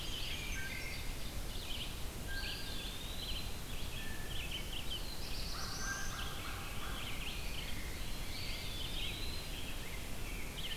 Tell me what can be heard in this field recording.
Brown Creeper, Red-eyed Vireo, Wood Thrush, Eastern Wood-Pewee, Blue Jay, Black-throated Blue Warbler, American Crow, Rose-breasted Grosbeak